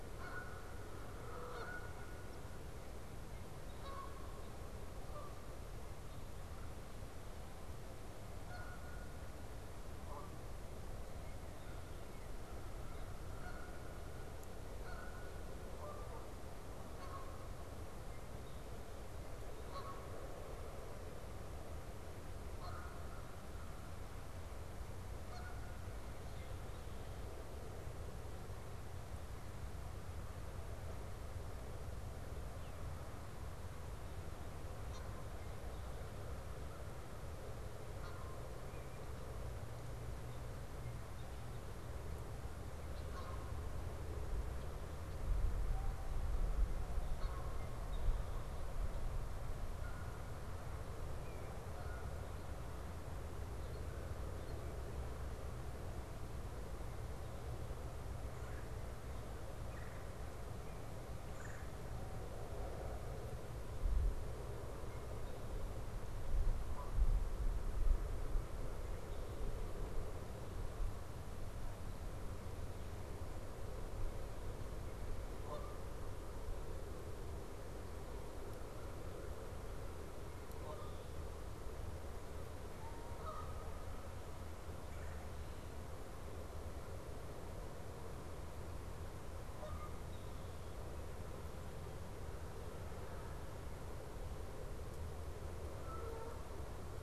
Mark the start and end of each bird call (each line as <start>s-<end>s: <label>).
0.0s-24.5s: Canada Goose (Branta canadensis)
11.0s-11.9s: Red-winged Blackbird (Agelaius phoeniceus)
17.9s-18.7s: Red-winged Blackbird (Agelaius phoeniceus)
25.1s-26.1s: Canada Goose (Branta canadensis)
26.2s-26.9s: Red-winged Blackbird (Agelaius phoeniceus)
34.4s-52.2s: Canada Goose (Branta canadensis)
36.4s-37.1s: American Crow (Corvus brachyrhynchos)
40.7s-41.7s: Red-winged Blackbird (Agelaius phoeniceus)
47.4s-48.4s: Red-winged Blackbird (Agelaius phoeniceus)
58.0s-61.9s: Red-bellied Woodpecker (Melanerpes carolinus)
64.7s-65.4s: Red-winged Blackbird (Agelaius phoeniceus)
66.2s-67.2s: Canada Goose (Branta canadensis)
75.2s-76.3s: Canada Goose (Branta canadensis)
80.3s-84.2s: Canada Goose (Branta canadensis)
84.6s-85.9s: Red-bellied Woodpecker (Melanerpes carolinus)
89.3s-90.0s: Canada Goose (Branta canadensis)
92.5s-93.8s: American Crow (Corvus brachyrhynchos)
95.3s-96.9s: Canada Goose (Branta canadensis)